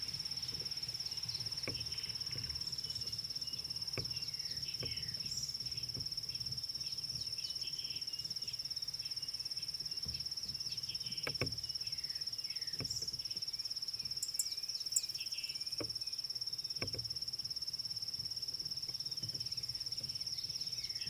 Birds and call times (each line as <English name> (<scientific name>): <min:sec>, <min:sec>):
Spot-flanked Barbet (Tricholaema lacrymosa): 0:06.3, 0:09.0
Purple Grenadier (Granatina ianthinogaster): 0:14.4